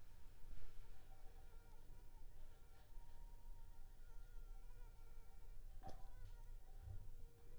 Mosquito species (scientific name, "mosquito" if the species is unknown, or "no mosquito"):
Anopheles funestus s.s.